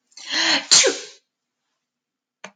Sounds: Sneeze